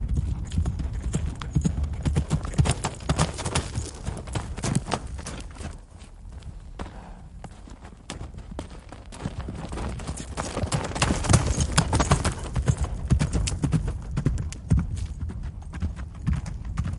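0.0s The sound of a horse riding on a dirt road. 5.7s
8.0s A horse is walking on a dirt road. 8.8s
9.2s The sound of a horse riding on a dirt road. 17.0s

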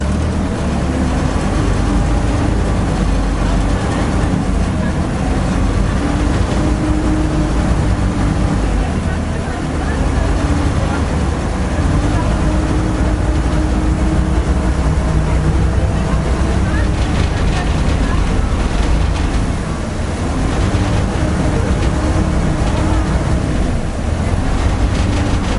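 0.0s A ferry is moving over a river. 25.6s

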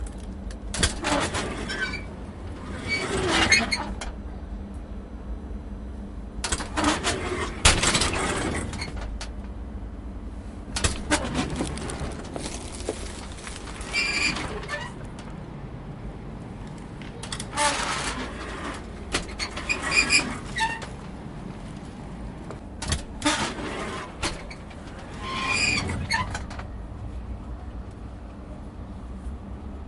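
0.4s A metallic squeaking sound of hinges as a rusted door opens and closes. 4.5s
6.3s A metallic squeaking sound of hinges as a rusted door opens and closes. 9.3s
10.5s A rusted door squeaks on its hinges as it opens and closes with a slight pause in between. 15.5s
17.0s A metallic squeaking sound of hinges as a rusted door opens and closes. 21.3s
22.8s A metallic squeaking sound of hinges as a rusted door opens and closes. 27.2s

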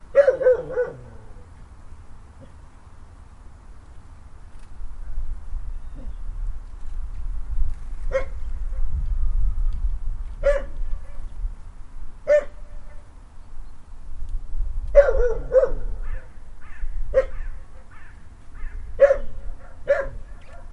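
0.1s A dog barks, gradually getting softer. 1.1s
4.0s Soft wind gradually becomes louder. 7.8s
8.1s A dog barks once. 8.7s
10.3s A dog barks once in the distance. 10.7s
12.2s A dog barks once. 12.5s
14.7s A dog barks softly and then fades away. 16.2s
17.1s A dog barks shortly. 17.4s
18.9s A dog barks once. 20.3s

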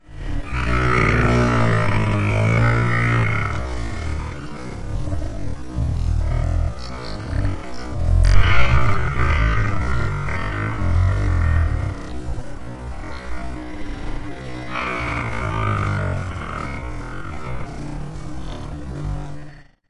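0.0s An extremely distorted and slightly reverberated growling sound. 19.9s

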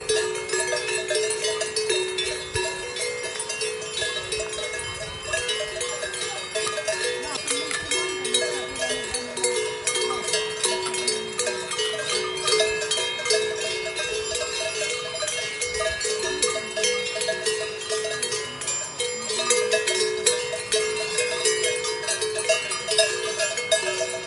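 0.0s Cowbells ringing melodically outdoors. 24.3s

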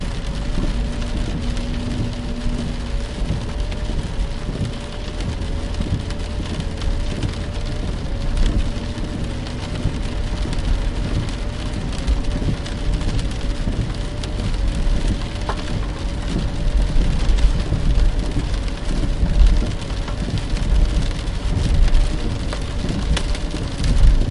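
0.0s Rain falling with gradually increasing intensity and heaviness. 24.3s
0.0s A quiet car engine running steadily. 24.3s

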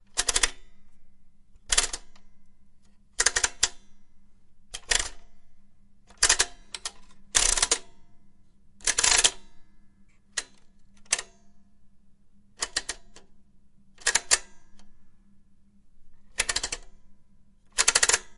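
0.0s A repeated clicking sound created by a machine turning something. 14.5s
16.3s A machine repeatedly clicks as something is turned. 18.4s

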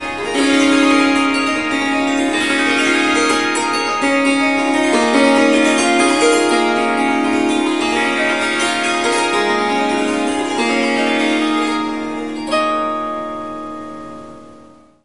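0.0s An Indian melody is played with string instruments. 15.0s

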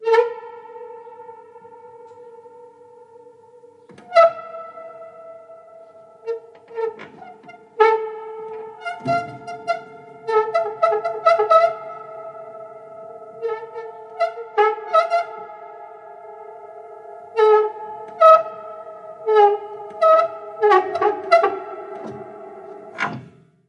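0.0s Strongly echoing, choppy squeaking sounds. 0.8s
0.5s A dull echoing sound. 23.6s
3.8s Strongly echoing, choppy squeaking sounds. 4.8s
6.2s Strongly echoing, choppy squeaking repeats irregularly. 12.2s
13.4s Strongly echoing, choppy squeaking repeats irregularly. 15.9s
17.3s Strongly echoing, choppy squeaking repeats irregularly. 21.9s
22.8s Creaking sounds intermittently. 23.4s

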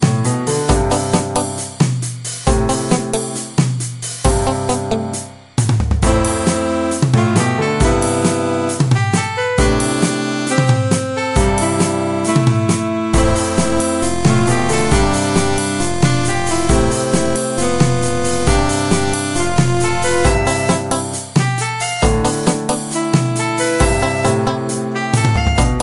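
0.0s A rhythmic jazz melody featuring saxophone, drums, and sound effects. 25.8s

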